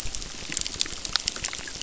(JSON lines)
{"label": "biophony, crackle", "recorder": "SoundTrap 600"}